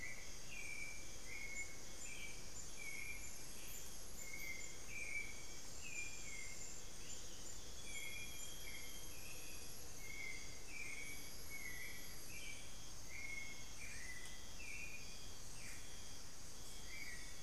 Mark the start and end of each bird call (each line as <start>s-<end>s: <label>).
0.0s-17.4s: Hauxwell's Thrush (Turdus hauxwelli)
3.4s-3.9s: unidentified bird
6.7s-7.6s: unidentified bird
7.2s-9.4s: Amazonian Grosbeak (Cyanoloxia rothschildii)
15.4s-17.4s: unidentified bird